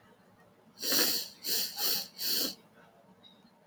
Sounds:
Sniff